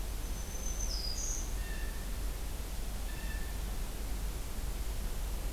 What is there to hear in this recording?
Black-throated Green Warbler, Blue Jay